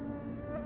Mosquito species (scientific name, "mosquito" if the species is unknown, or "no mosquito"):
Culex tarsalis